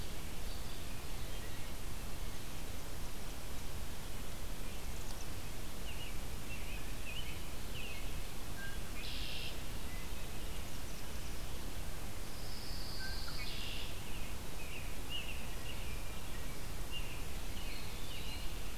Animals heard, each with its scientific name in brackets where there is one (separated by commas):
Eastern Wood-Pewee (Contopus virens), Pine Warbler (Setophaga pinus), American Robin (Turdus migratorius), Chimney Swift (Chaetura pelagica), Wood Thrush (Hylocichla mustelina), Red-winged Blackbird (Agelaius phoeniceus)